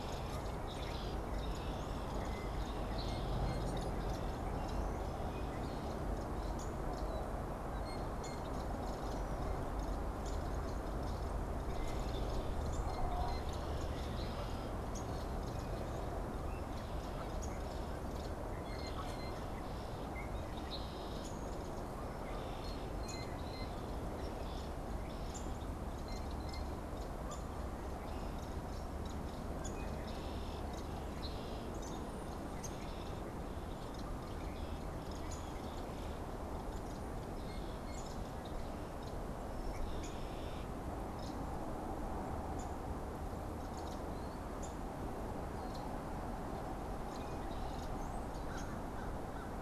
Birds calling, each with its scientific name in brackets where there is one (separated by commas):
unidentified bird, American Crow (Corvus brachyrhynchos), Brown-headed Cowbird (Molothrus ater), Blue Jay (Cyanocitta cristata), Downy Woodpecker (Dryobates pubescens)